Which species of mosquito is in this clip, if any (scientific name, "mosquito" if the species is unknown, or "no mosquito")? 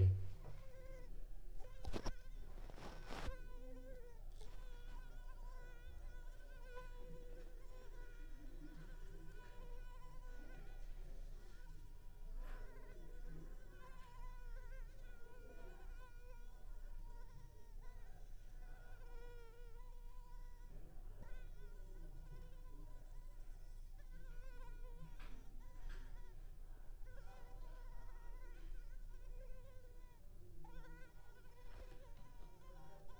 Culex pipiens complex